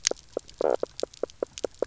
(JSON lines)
{"label": "biophony, knock croak", "recorder": "SoundTrap 300"}